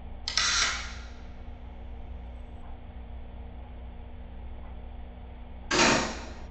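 At 0.25 seconds, the sound of a camera is heard. Then at 5.7 seconds, cutlery can be heard.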